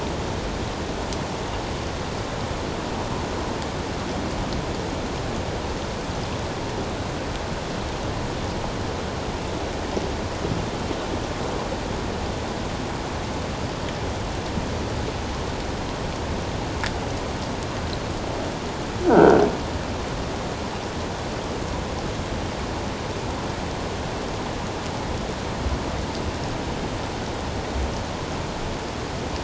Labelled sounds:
19.1	19.4	croaking sound likely from a nearby submerged object, 1.3 to 1.6 kHz

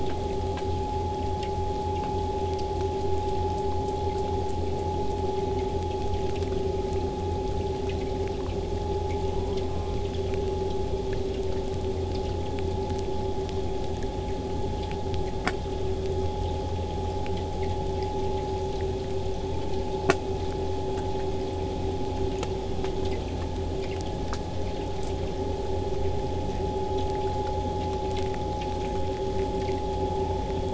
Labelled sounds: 22.9	27.9	vessel noise, 0 to 8.0 kHz

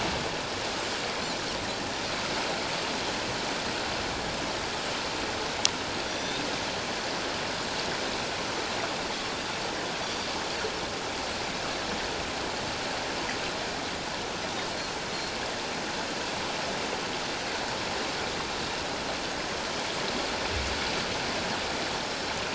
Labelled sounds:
6.0	6.4	Pacific white-sided dolphin, 3.3 to 6.0 kHz
10.0	10.3	Pacific white-sided dolphin, 3.3 to 5.8 kHz

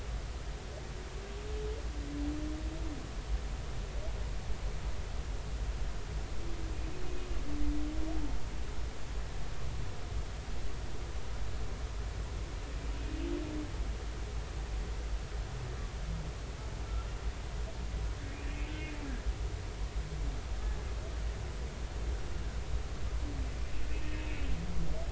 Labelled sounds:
23.9	24.5	humpback whale, 2.5 to 2.7 kHz

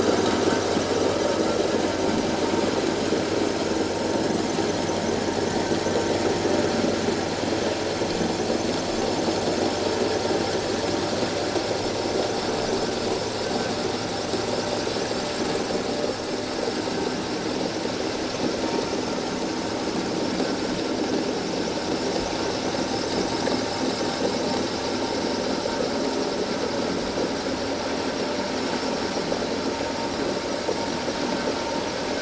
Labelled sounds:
22.1	22.4	vessel noise, 6.1 to 6.3 kHz

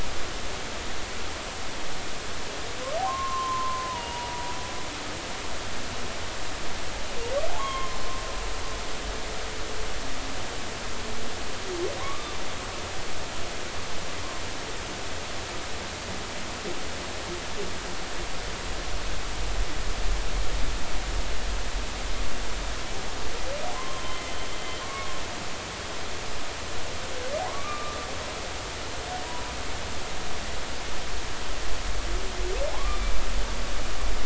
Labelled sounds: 3.0	4.5	humpback whale, 0.90 to 2.9 kHz
7.5	8.0	humpback whale, 0.80 to 3.4 kHz
12.0	12.3	humpback whale, 0.96 to 1.2 kHz
23.7	24.3	humpback whale, 0.99 to 3.2 kHz
24.8	25.1	humpback whale, 1.0 to 1.2 kHz
27.4	28.0	humpback whale, 0.80 to 1.3 kHz
32.7	33.0	humpback whale, 0.96 to 1.2 kHz

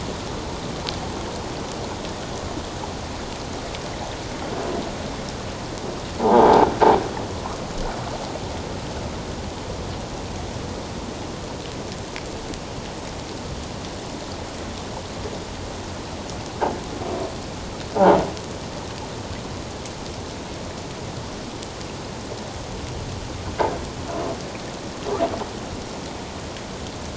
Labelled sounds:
6.2	6.7	croaking sound likely from a nearby submerged object, 0.78 to 1.0 kHz

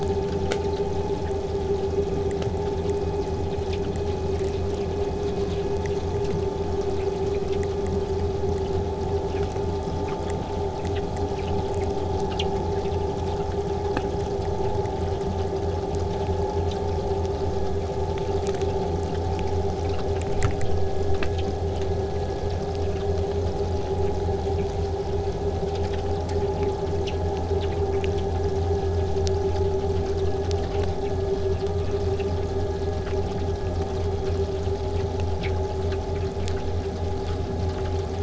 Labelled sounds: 29.3	34.3	vessel noise, 0 to 8.0 kHz

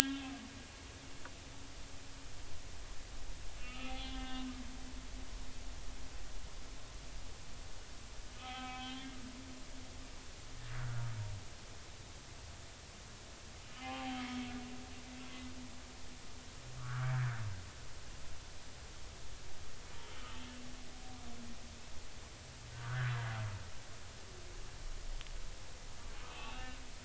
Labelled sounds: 0.1	0.3	humpback whale, 0.99 to 1.1 kHz
1.0	1.3	humpback whale, 1.6 to 3.6 kHz
3.6	4.5	humpback whale, 0.80 to 3.5 kHz
5.0	5.5	humpback whale, 3.6 to 3.7 kHz
8.4	9.1	humpback whale, 0.80 to 3.5 kHz
10.8	11.1	humpback whale, 1.3 to 1.5 kHz
13.8	14.4	humpback whale, 0.80 to 3.3 kHz
16.8	17.1	humpback whale, 1.1 to 1.7 kHz
22.7	23.1	humpback whale, 1.1 to 1.8 kHz
26.2	26.8	humpback whale, 1.1 to 2.8 kHz

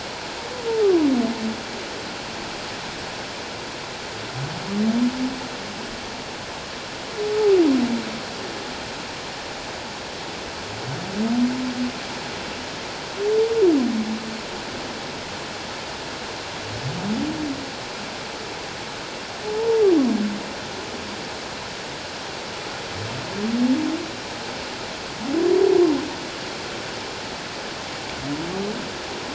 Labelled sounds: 19.5	19.8	humpback whale, 0.84 to 1.0 kHz

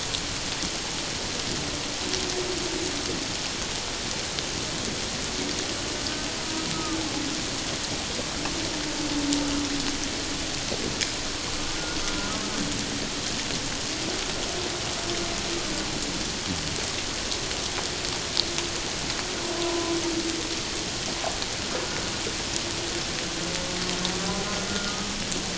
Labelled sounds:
6.7	7.0	humpback whale, 1.1 to 1.3 kHz
19.6	19.9	humpback whale, 0.91 to 1.1 kHz

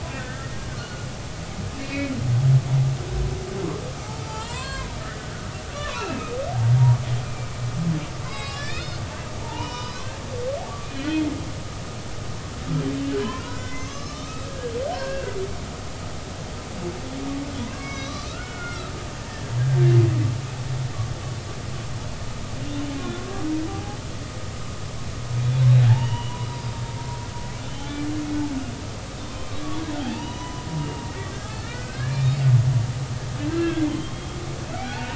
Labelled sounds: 0.1	0.6	humpback whale, 1.5 to 1.9 kHz
1.7	2.1	humpback whale, 2.1 to 2.8 kHz
4.2	5.2	humpback whale, 0.83 to 4.9 kHz
5.8	6.4	humpback whale, 0.86 to 2.8 kHz
7.2	9.0	humpback whale, 0.99 to 5.3 kHz
9.4	10.2	humpback whale, 0.83 to 6.0 kHz
10.9	11.2	humpback whale, 4.0 to 4.3 kHz
13.2	15.4	humpback whale, 0.93 to 6.6 kHz
17.6	19.9	humpback whale, 0.93 to 6.1 kHz
23.7	24.0	humpback whale, 0.80 to 0.86 kHz
25.9	26.7	humpback whale, 0.80 to 5.0 kHz
27.7	28.1	humpback whale, 1.7 to 3.2 kHz
30.0	32.4	humpback whale, 0.80 to 3.8 kHz
33.5	34.4	humpback whale, 1.5 to 3.3 kHz
34.8	35.1	humpback whale, 0.80 to 3.0 kHz

